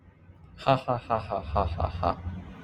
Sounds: Laughter